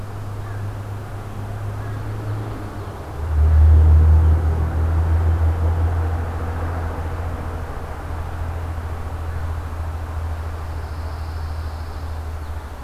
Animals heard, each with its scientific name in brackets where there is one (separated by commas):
Pine Warbler (Setophaga pinus)